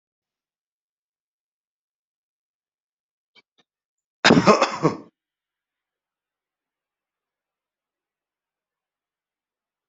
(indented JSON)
{
  "expert_labels": [
    {
      "quality": "good",
      "cough_type": "dry",
      "dyspnea": false,
      "wheezing": false,
      "stridor": false,
      "choking": false,
      "congestion": false,
      "nothing": true,
      "diagnosis": "healthy cough",
      "severity": "pseudocough/healthy cough"
    }
  ],
  "age": 48,
  "gender": "male",
  "respiratory_condition": false,
  "fever_muscle_pain": false,
  "status": "healthy"
}